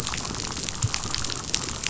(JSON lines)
{"label": "biophony, chatter", "recorder": "SoundTrap 500"}